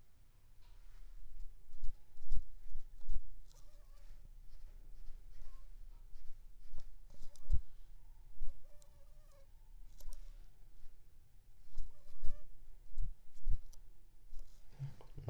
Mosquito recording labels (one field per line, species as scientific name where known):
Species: Anopheles funestus s.s.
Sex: female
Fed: unfed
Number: one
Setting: cup